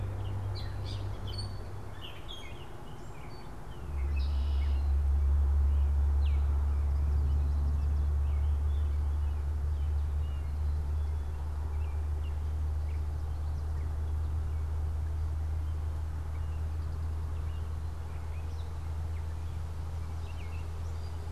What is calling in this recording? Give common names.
Gray Catbird, Red-winged Blackbird, Baltimore Oriole